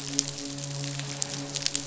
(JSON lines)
{"label": "biophony, midshipman", "recorder": "SoundTrap 500"}